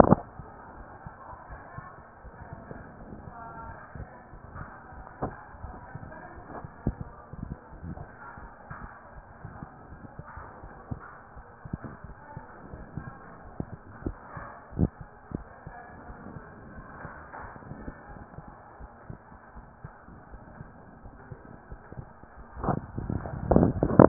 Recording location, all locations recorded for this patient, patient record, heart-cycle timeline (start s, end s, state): aortic valve (AV)
aortic valve (AV)+pulmonary valve (PV)+tricuspid valve (TV)
#Age: Adolescent
#Sex: Female
#Height: 161.0 cm
#Weight: 69.1 kg
#Pregnancy status: False
#Murmur: Absent
#Murmur locations: nan
#Most audible location: nan
#Systolic murmur timing: nan
#Systolic murmur shape: nan
#Systolic murmur grading: nan
#Systolic murmur pitch: nan
#Systolic murmur quality: nan
#Diastolic murmur timing: nan
#Diastolic murmur shape: nan
#Diastolic murmur grading: nan
#Diastolic murmur pitch: nan
#Diastolic murmur quality: nan
#Outcome: Abnormal
#Campaign: 2015 screening campaign
0.00	18.64	unannotated
18.64	18.80	diastole
18.80	18.92	S1
18.92	19.08	systole
19.08	19.18	S2
19.18	19.51	diastole
19.51	19.66	S1
19.66	19.82	systole
19.82	19.94	S2
19.94	20.30	diastole
20.30	20.42	S1
20.42	20.58	systole
20.58	20.70	S2
20.70	21.03	diastole
21.03	21.14	S1
21.14	21.29	systole
21.29	21.38	S2
21.38	21.70	diastole
21.70	21.82	S1
21.82	21.96	systole
21.96	22.08	S2
22.08	22.36	diastole
22.36	22.46	S1
22.46	24.08	unannotated